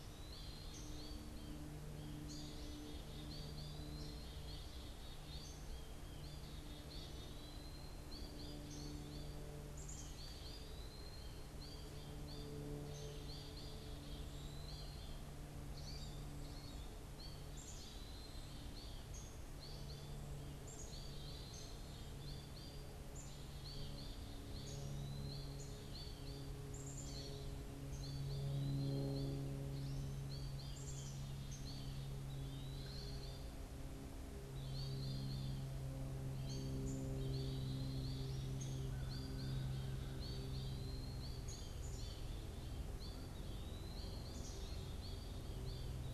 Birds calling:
Eastern Wood-Pewee (Contopus virens), Downy Woodpecker (Dryobates pubescens), American Goldfinch (Spinus tristis), Black-capped Chickadee (Poecile atricapillus), Pileated Woodpecker (Dryocopus pileatus)

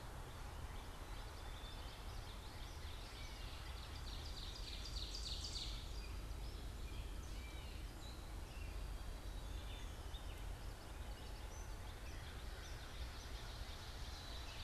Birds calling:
Gray Catbird (Dumetella carolinensis), Common Yellowthroat (Geothlypis trichas), Ovenbird (Seiurus aurocapilla), Black-capped Chickadee (Poecile atricapillus)

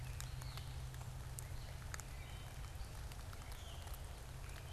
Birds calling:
Gray Catbird (Dumetella carolinensis)

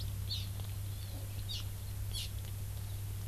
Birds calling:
Hawaii Amakihi (Chlorodrepanis virens)

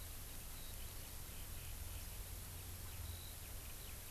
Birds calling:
Eurasian Skylark (Alauda arvensis)

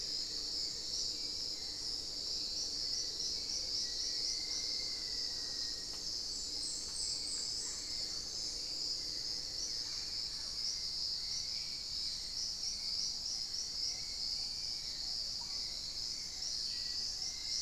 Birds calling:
unidentified bird, Hauxwell's Thrush (Turdus hauxwelli), Mealy Parrot (Amazona farinosa), Dusky-throated Antshrike (Thamnomanes ardesiacus), Black-faced Antthrush (Formicarius analis)

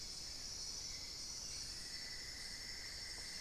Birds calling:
unidentified bird, Cinnamon-throated Woodcreeper (Dendrexetastes rufigula)

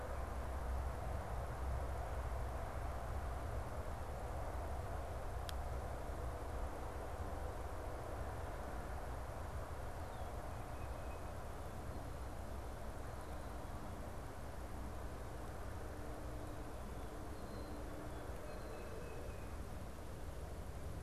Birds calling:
Black-capped Chickadee (Poecile atricapillus), Tufted Titmouse (Baeolophus bicolor)

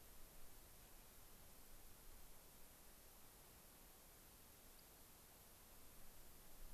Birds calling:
Rock Wren (Salpinctes obsoletus)

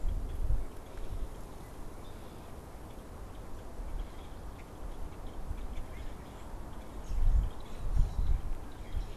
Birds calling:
Red-winged Blackbird (Agelaius phoeniceus)

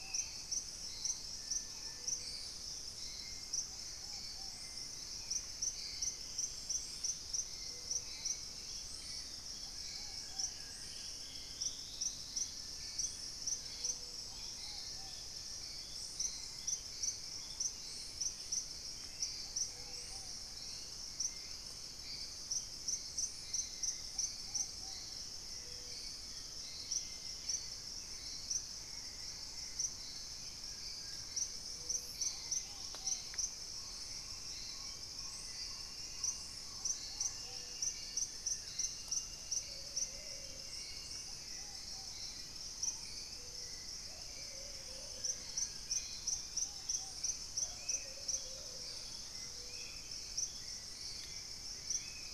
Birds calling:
Band-tailed Manakin (Pipra fasciicauda), Plain-winged Antshrike (Thamnophilus schistaceus), unidentified bird, Plumbeous Pigeon (Patagioenas plumbea), Purple-throated Fruitcrow (Querula purpurata), Hauxwell's Thrush (Turdus hauxwelli), Dusky-throated Antshrike (Thamnomanes ardesiacus), Ruddy Pigeon (Patagioenas subvinacea), Dusky-capped Greenlet (Pachysylvia hypoxantha), Long-winged Antwren (Myrmotherula longipennis), Amazonian Trogon (Trogon ramonianus), Gray Antwren (Myrmotherula menetriesii), Collared Trogon (Trogon collaris), Spot-winged Antshrike (Pygiptila stellaris)

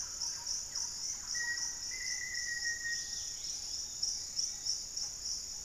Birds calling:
Dusky-capped Greenlet (Pachysylvia hypoxantha), Thrush-like Wren (Campylorhynchus turdinus), Yellow-margined Flycatcher (Tolmomyias assimilis), Lemon-throated Barbet (Eubucco richardsoni), Black-faced Antthrush (Formicarius analis), Black-tailed Trogon (Trogon melanurus)

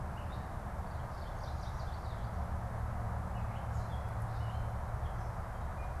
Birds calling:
Gray Catbird (Dumetella carolinensis), Chestnut-sided Warbler (Setophaga pensylvanica)

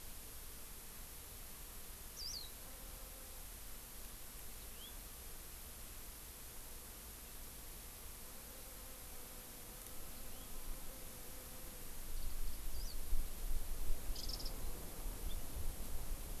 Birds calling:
House Finch (Haemorhous mexicanus), Warbling White-eye (Zosterops japonicus)

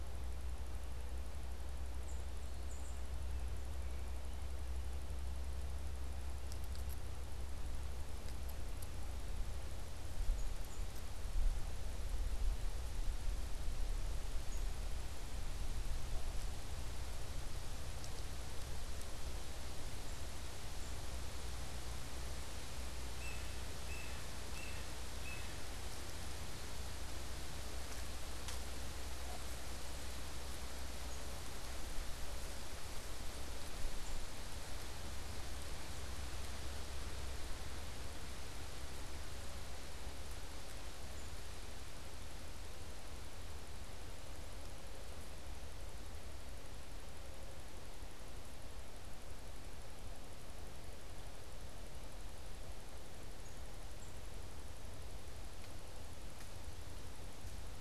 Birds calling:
Tufted Titmouse (Baeolophus bicolor), Yellow-bellied Sapsucker (Sphyrapicus varius), unidentified bird

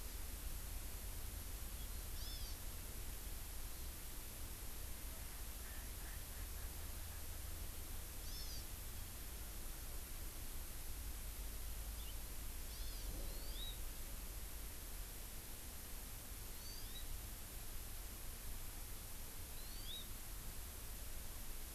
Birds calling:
Hawaii Amakihi (Chlorodrepanis virens), Erckel's Francolin (Pternistis erckelii)

